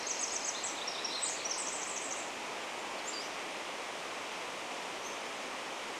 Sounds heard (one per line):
Pacific-slope Flycatcher song
Pacific-slope Flycatcher call
Pacific Wren song